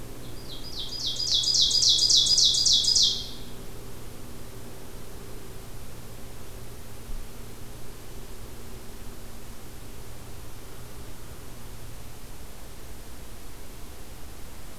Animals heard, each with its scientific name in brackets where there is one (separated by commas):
Ovenbird (Seiurus aurocapilla)